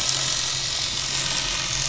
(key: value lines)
label: anthrophony, boat engine
recorder: SoundTrap 500